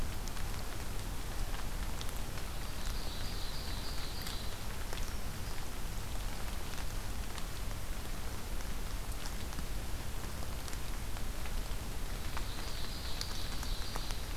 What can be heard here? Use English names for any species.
Ovenbird